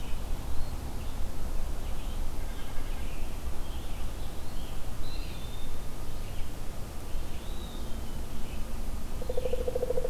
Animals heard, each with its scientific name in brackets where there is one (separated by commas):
Pileated Woodpecker (Dryocopus pileatus), Red-eyed Vireo (Vireo olivaceus), Eastern Wood-Pewee (Contopus virens), Scarlet Tanager (Piranga olivacea), White-breasted Nuthatch (Sitta carolinensis)